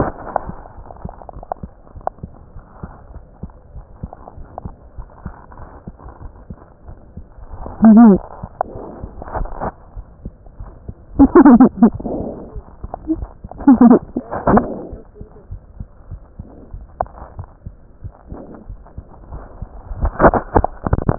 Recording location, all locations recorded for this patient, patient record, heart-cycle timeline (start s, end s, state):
aortic valve (AV)
aortic valve (AV)+pulmonary valve (PV)+tricuspid valve (TV)+mitral valve (MV)
#Age: Child
#Sex: Female
#Height: nan
#Weight: nan
#Pregnancy status: False
#Murmur: Absent
#Murmur locations: nan
#Most audible location: nan
#Systolic murmur timing: nan
#Systolic murmur shape: nan
#Systolic murmur grading: nan
#Systolic murmur pitch: nan
#Systolic murmur quality: nan
#Diastolic murmur timing: nan
#Diastolic murmur shape: nan
#Diastolic murmur grading: nan
#Diastolic murmur pitch: nan
#Diastolic murmur quality: nan
#Outcome: Normal
#Campaign: 2015 screening campaign
0.00	3.12	unannotated
3.12	3.22	S1
3.22	3.41	systole
3.41	3.48	S2
3.48	3.74	diastole
3.74	3.86	S1
3.86	4.02	systole
4.02	4.12	S2
4.12	4.37	diastole
4.37	4.50	S1
4.50	4.62	systole
4.62	4.72	S2
4.72	4.98	diastole
4.98	5.08	S1
5.08	5.22	systole
5.22	5.34	S2
5.34	5.60	diastole
5.60	5.70	S1
5.70	5.84	systole
5.84	5.94	S2
5.94	6.24	diastole
6.24	6.34	S1
6.34	6.48	systole
6.48	6.58	S2
6.58	6.88	diastole
6.88	6.98	S1
6.98	7.14	systole
7.14	7.24	S2
7.24	7.52	diastole
7.52	7.62	S1
7.62	21.18	unannotated